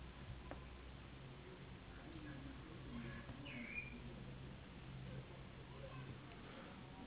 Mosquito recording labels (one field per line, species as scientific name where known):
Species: Anopheles gambiae s.s.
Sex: female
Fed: unfed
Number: one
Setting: insect culture